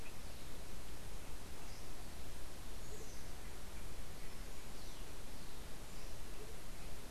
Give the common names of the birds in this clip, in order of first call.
Andean Motmot